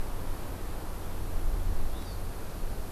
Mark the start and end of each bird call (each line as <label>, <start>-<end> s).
Hawaii Amakihi (Chlorodrepanis virens), 1.9-2.2 s